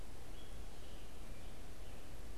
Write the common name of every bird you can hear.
Scarlet Tanager